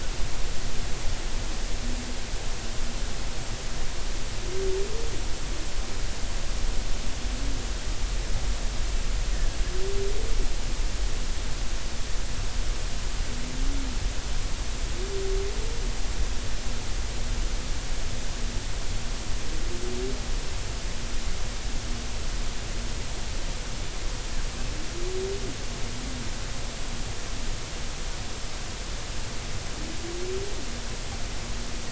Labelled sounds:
9.3	9.6	killer whale, 1.6 to 1.9 kHz

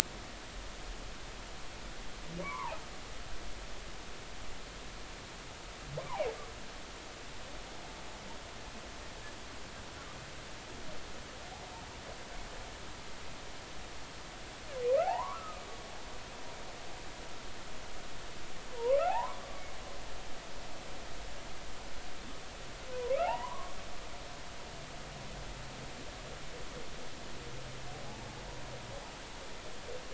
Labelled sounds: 2.4	2.8	humpback whale, 0.80 to 2.3 kHz
15.0	15.6	humpback whale, 0.80 to 1.4 kHz
18.8	19.4	humpback whale, 0.80 to 1.2 kHz
22.9	23.8	humpback whale, 0.80 to 3.0 kHz
28.0	28.4	humpback whale, 0.80 to 0.96 kHz

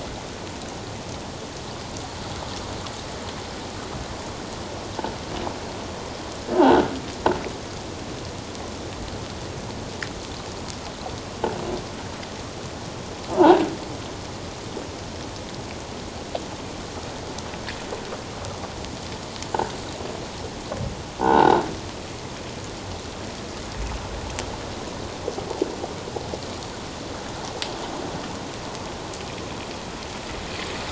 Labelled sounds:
6.6	6.9	croaking sound likely from a nearby submerged object, 1.4 to 1.6 kHz
13.4	13.6	croaking sound likely from a nearby submerged object, 0.78 to 1.0 kHz
21.2	21.6	croaking sound likely from a nearby submerged object, 0.78 to 3.9 kHz

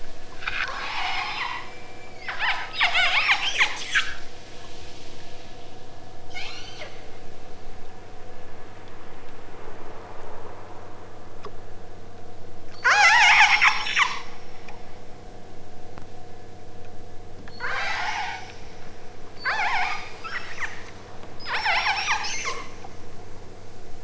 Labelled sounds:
0.7	4.1	killer whale, southern Alaska resident, 0.41 to 8.0 kHz
6.3	7.1	killer whale, southern Alaska resident, 0.78 to 8.0 kHz
12.7	14.3	killer whale, southern Alaska resident, 0.57 to 8.0 kHz
17.5	18.6	killer whale, southern Alaska resident, 0.51 to 8.0 kHz
19.3	20.7	killer whale, southern Alaska resident, 0.47 to 8.0 kHz
21.4	22.6	killer whale, southern Alaska resident, 0.37 to 8.0 kHz

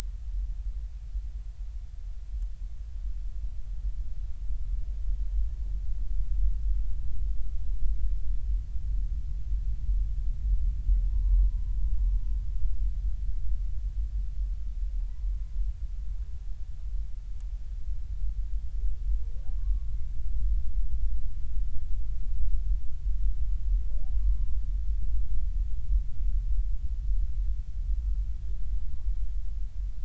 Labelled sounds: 11.0	11.6	humpback whale, 0.80 to 1.1 kHz
15.0	15.2	humpback whale, 0.80 to 1.1 kHz
19.6	19.9	humpback whale, 0.99 to 1.2 kHz
24.1	24.6	humpback whale, 0.93 to 1.2 kHz

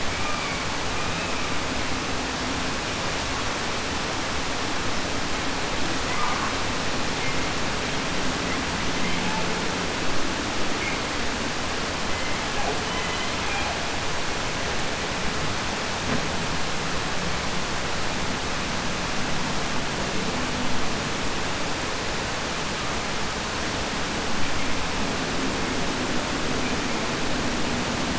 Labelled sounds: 0.0	1.7	killer whale, 0.67 to 5.3 kHz
6.0	6.7	killer whale, 0.34 to 2.6 kHz
7.1	7.6	killer whale, 0.54 to 3.3 kHz
8.4	8.6	killer whale, 0.50 to 4.0 kHz
8.9	9.5	killer whale, southern resident, J pod, call S01, 0.59 to 4.1 kHz
11.9	14.2	killer whale, southern resident, J pod, call S01, 0 to 4.3 kHz

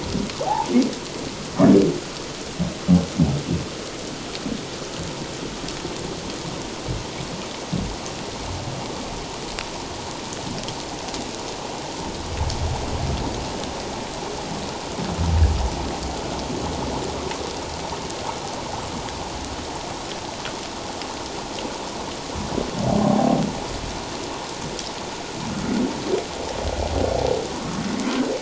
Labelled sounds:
0.4	0.7	humpback whale, 0.78 to 1.0 kHz
23.0	23.4	humpback whale, 0.78 to 0.84 kHz

